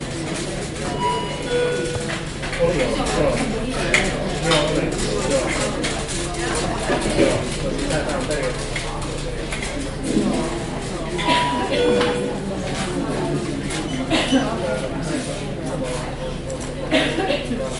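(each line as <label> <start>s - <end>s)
A notification beep sounds in a public queue. 0.8s - 1.9s
People murmuring in a public place. 2.3s - 11.1s
Beeping notifications echo through a public gathering space. 11.2s - 12.3s
People waiting in a queue. 12.5s - 17.8s
A QR code machine is beeping. 13.5s - 14.7s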